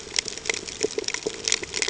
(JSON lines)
{"label": "ambient", "recorder": "HydroMoth"}